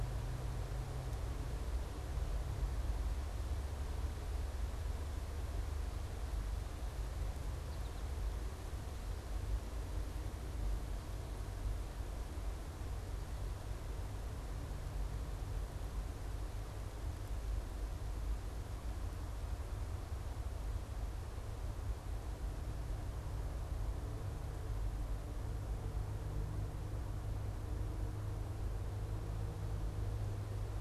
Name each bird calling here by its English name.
American Goldfinch